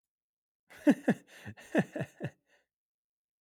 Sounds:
Laughter